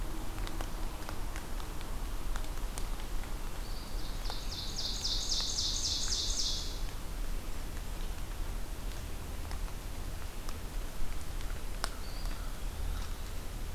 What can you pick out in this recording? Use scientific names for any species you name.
Contopus virens, Seiurus aurocapilla